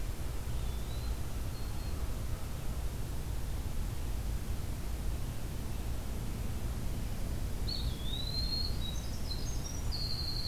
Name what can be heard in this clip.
Eastern Wood-Pewee, Black-throated Green Warbler, Winter Wren